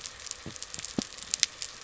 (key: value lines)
label: biophony
recorder: SoundTrap 300